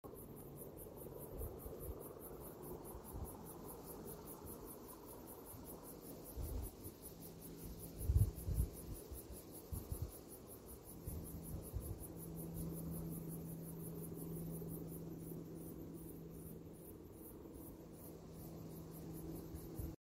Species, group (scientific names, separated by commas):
Atrapsalta encaustica, Cicadidae